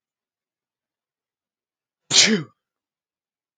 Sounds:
Sneeze